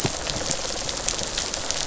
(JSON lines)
{"label": "biophony, rattle response", "recorder": "SoundTrap 500"}